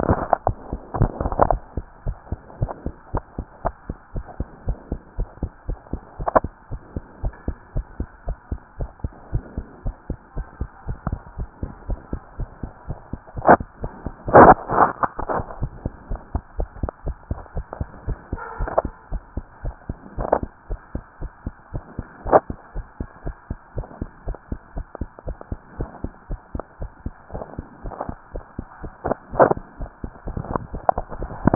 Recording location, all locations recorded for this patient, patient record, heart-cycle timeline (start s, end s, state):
tricuspid valve (TV)
aortic valve (AV)+pulmonary valve (PV)+tricuspid valve (TV)+mitral valve (MV)
#Age: Child
#Sex: Female
#Height: 112.0 cm
#Weight: 18.6 kg
#Pregnancy status: False
#Murmur: Absent
#Murmur locations: nan
#Most audible location: nan
#Systolic murmur timing: nan
#Systolic murmur shape: nan
#Systolic murmur grading: nan
#Systolic murmur pitch: nan
#Systolic murmur quality: nan
#Diastolic murmur timing: nan
#Diastolic murmur shape: nan
#Diastolic murmur grading: nan
#Diastolic murmur pitch: nan
#Diastolic murmur quality: nan
#Outcome: Normal
#Campaign: 2015 screening campaign
0.00	1.85	unannotated
1.85	2.04	diastole
2.04	2.18	S1
2.18	2.28	systole
2.28	2.42	S2
2.42	2.58	diastole
2.58	2.72	S1
2.72	2.84	systole
2.84	2.96	S2
2.96	3.12	diastole
3.12	3.22	S1
3.22	3.36	systole
3.36	3.46	S2
3.46	3.62	diastole
3.62	3.74	S1
3.74	3.86	systole
3.86	3.96	S2
3.96	4.14	diastole
4.14	4.24	S1
4.24	4.38	systole
4.38	4.48	S2
4.48	4.62	diastole
4.62	4.76	S1
4.76	4.88	systole
4.88	5.00	S2
5.00	5.16	diastole
5.16	5.28	S1
5.28	5.40	systole
5.40	5.50	S2
5.50	5.66	diastole
5.66	5.78	S1
5.78	5.90	systole
5.90	6.00	S2
6.00	6.16	diastole
6.16	6.28	S1
6.28	6.42	systole
6.42	6.52	S2
6.52	6.70	diastole
6.70	6.82	S1
6.82	6.94	systole
6.94	7.04	S2
7.04	7.20	diastole
7.20	7.34	S1
7.34	7.46	systole
7.46	7.56	S2
7.56	7.74	diastole
7.74	7.86	S1
7.86	7.98	systole
7.98	8.08	S2
8.08	8.24	diastole
8.24	8.38	S1
8.38	8.50	systole
8.50	8.62	S2
8.62	8.78	diastole
8.78	8.90	S1
8.90	9.02	systole
9.02	9.12	S2
9.12	9.28	diastole
9.28	9.42	S1
9.42	9.56	systole
9.56	9.68	S2
9.68	9.84	diastole
9.84	9.96	S1
9.96	10.08	systole
10.08	10.18	S2
10.18	10.34	diastole
10.34	10.46	S1
10.46	10.58	systole
10.58	10.68	S2
10.68	10.84	diastole
10.84	10.98	S1
10.98	11.06	systole
11.06	11.20	S2
11.20	11.36	diastole
11.36	11.48	S1
11.48	11.60	systole
11.60	11.74	S2
11.74	11.88	diastole
11.88	12.00	S1
12.00	12.10	systole
12.10	12.20	S2
12.20	12.36	diastole
12.36	12.50	S1
12.50	12.62	systole
12.62	12.72	S2
12.72	12.88	diastole
12.88	12.98	S1
12.98	13.10	systole
13.10	13.20	S2
13.20	13.36	diastole
13.36	13.46	S1
13.46	13.50	systole
13.50	13.66	S2
13.66	13.80	diastole
13.80	13.92	S1
13.92	14.04	systole
14.04	14.18	S2
14.18	14.36	diastole
14.36	14.54	S1
14.54	14.70	systole
14.70	14.86	S2
14.86	15.02	diastole
15.02	15.14	S1
15.14	15.30	systole
15.30	15.46	S2
15.46	15.60	diastole
15.60	15.74	S1
15.74	15.84	systole
15.84	15.94	S2
15.94	16.08	diastole
16.08	16.22	S1
16.22	16.32	systole
16.32	16.42	S2
16.42	16.56	diastole
16.56	16.70	S1
16.70	16.80	systole
16.80	16.92	S2
16.92	17.04	diastole
17.04	17.18	S1
17.18	17.28	systole
17.28	17.38	S2
17.38	17.54	diastole
17.54	17.66	S1
17.66	17.78	systole
17.78	17.88	S2
17.88	18.04	diastole
18.04	18.18	S1
18.18	18.30	systole
18.30	18.40	S2
18.40	18.56	diastole
18.56	18.70	S1
18.70	18.82	systole
18.82	18.92	S2
18.92	19.10	diastole
19.10	19.22	S1
19.22	19.34	systole
19.34	19.46	S2
19.46	19.62	diastole
19.62	19.76	S1
19.76	19.88	systole
19.88	19.98	S2
19.98	20.14	diastole
20.14	20.28	S1
20.28	20.40	systole
20.40	20.50	S2
20.50	20.66	diastole
20.66	20.80	S1
20.80	20.92	systole
20.92	21.04	S2
21.04	21.19	diastole
21.19	21.32	S1
21.32	21.43	systole
21.43	21.54	S2
21.54	21.71	diastole
21.71	21.84	S1
21.84	21.96	systole
21.96	22.08	S2
22.08	22.26	diastole
22.26	22.42	S1
22.42	22.48	systole
22.48	22.58	S2
22.58	22.74	diastole
22.74	22.86	S1
22.86	22.98	systole
22.98	23.08	S2
23.08	23.24	diastole
23.24	23.36	S1
23.36	23.48	systole
23.48	23.58	S2
23.58	23.75	diastole
23.75	23.85	S1
23.85	24.00	systole
24.00	24.10	S2
24.10	24.25	diastole
24.25	24.38	S1
24.38	24.50	systole
24.50	24.60	S2
24.60	24.74	diastole
24.74	24.88	S1
24.88	25.00	systole
25.00	25.10	S2
25.10	25.24	diastole
25.24	25.38	S1
25.38	25.50	systole
25.50	25.60	S2
25.60	25.76	diastole
25.76	25.90	S1
25.90	26.02	systole
26.02	26.12	S2
26.12	26.28	diastole
26.28	26.40	S1
26.40	26.52	systole
26.52	26.64	S2
26.64	26.78	diastole
26.78	26.92	S1
26.92	27.04	systole
27.04	27.14	S2
27.14	27.32	diastole
27.32	27.46	S1
27.46	27.57	systole
27.57	27.68	S2
27.68	27.84	diastole
27.84	27.96	S1
27.96	28.07	systole
28.07	28.18	S2
28.18	28.33	diastole
28.33	28.46	S1
28.46	28.57	systole
28.57	28.68	S2
28.68	28.83	diastole
28.83	31.55	unannotated